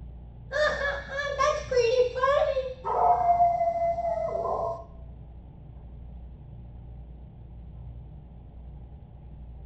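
First, there is laughter. Following that, you can hear a dog.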